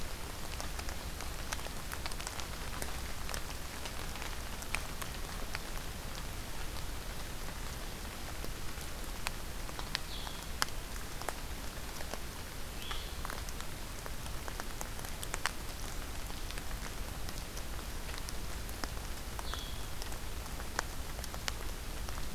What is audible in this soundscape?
Blue-headed Vireo